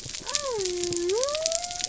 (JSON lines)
{"label": "biophony", "recorder": "SoundTrap 300"}